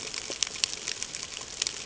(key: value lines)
label: ambient
recorder: HydroMoth